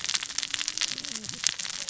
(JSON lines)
{"label": "biophony, cascading saw", "recorder": "SoundTrap 600 or HydroMoth"}